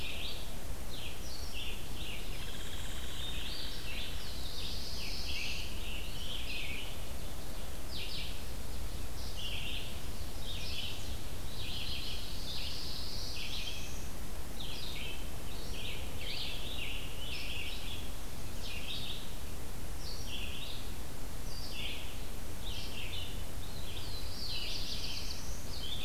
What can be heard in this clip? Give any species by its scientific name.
Vireo olivaceus, Dryobates villosus, Setophaga caerulescens, Piranga olivacea, Setophaga pinus